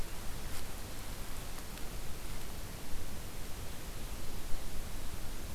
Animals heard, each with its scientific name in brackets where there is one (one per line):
Ovenbird (Seiurus aurocapilla)